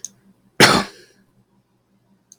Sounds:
Cough